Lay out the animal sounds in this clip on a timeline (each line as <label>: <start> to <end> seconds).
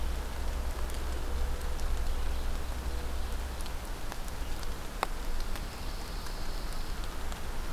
Pine Warbler (Setophaga pinus): 5.2 to 7.0 seconds